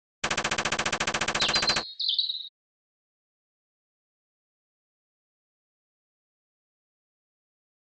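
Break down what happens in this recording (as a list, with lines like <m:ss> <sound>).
0:00 there is gunfire
0:01 you can hear a bird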